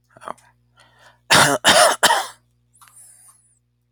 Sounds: Cough